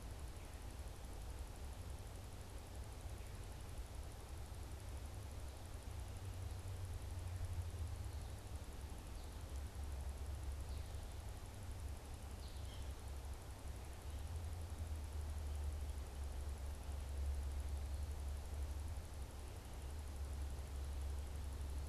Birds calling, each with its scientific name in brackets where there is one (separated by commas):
American Goldfinch (Spinus tristis)